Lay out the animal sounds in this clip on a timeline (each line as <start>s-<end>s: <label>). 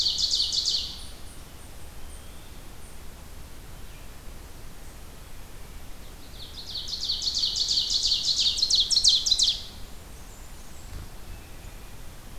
0.0s-1.0s: Ovenbird (Seiurus aurocapilla)
0.0s-3.0s: unknown mammal
1.8s-2.7s: Eastern Wood-Pewee (Contopus virens)
6.1s-9.6s: Ovenbird (Seiurus aurocapilla)
9.8s-11.2s: Blackburnian Warbler (Setophaga fusca)
11.2s-12.2s: Hermit Thrush (Catharus guttatus)